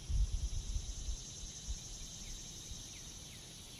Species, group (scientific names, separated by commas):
Neotibicen tibicen, Cicadidae